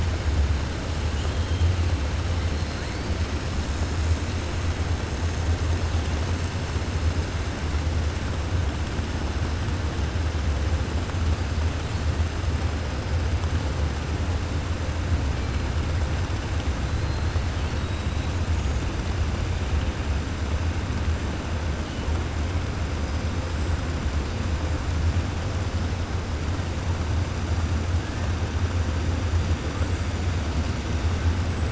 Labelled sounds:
1.1	1.7	killer whale, 2.9 to 3.3 kHz
17.5	18.0	killer whale, 2.6 to 4.6 kHz

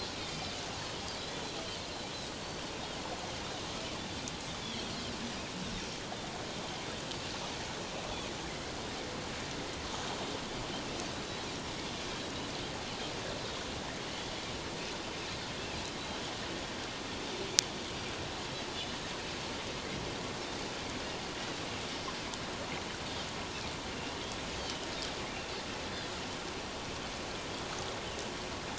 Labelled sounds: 0.2	0.5	Pacific white-sided dolphin, 2.3 to 4.8 kHz
4.6	4.9	Pacific white-sided dolphin, 3.1 to 3.5 kHz

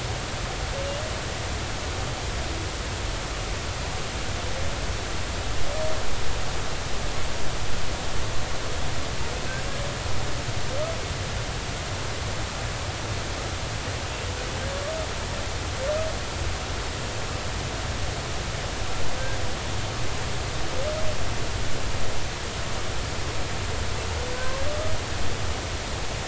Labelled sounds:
24.3	24.6	humpback whale, 0.99 to 1.1 kHz

